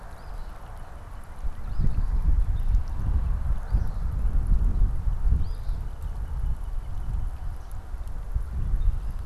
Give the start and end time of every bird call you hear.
0.0s-0.6s: Eastern Phoebe (Sayornis phoebe)
0.2s-2.7s: Northern Cardinal (Cardinalis cardinalis)
1.4s-2.1s: Eastern Phoebe (Sayornis phoebe)
3.3s-4.1s: Eastern Phoebe (Sayornis phoebe)
5.1s-7.4s: Northern Cardinal (Cardinalis cardinalis)
5.2s-5.9s: Eastern Phoebe (Sayornis phoebe)

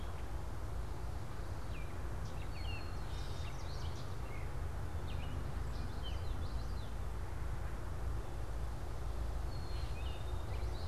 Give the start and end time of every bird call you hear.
0.0s-7.0s: Common Yellowthroat (Geothlypis trichas)
0.0s-10.5s: Black-capped Chickadee (Poecile atricapillus)
1.6s-2.9s: Baltimore Oriole (Icterus galbula)

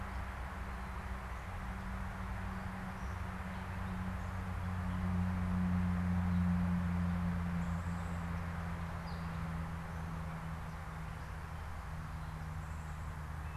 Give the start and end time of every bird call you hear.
8.9s-9.4s: unidentified bird

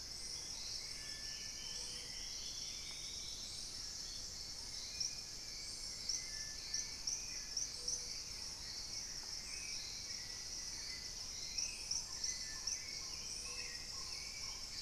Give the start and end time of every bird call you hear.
0.0s-4.8s: Purple-throated Fruitcrow (Querula purpurata)
0.0s-14.8s: Hauxwell's Thrush (Turdus hauxwelli)
0.7s-4.1s: Dusky-throated Antshrike (Thamnomanes ardesiacus)
7.0s-14.8s: Spot-winged Antshrike (Pygiptila stellaris)
11.8s-14.8s: Amazonian Trogon (Trogon ramonianus)

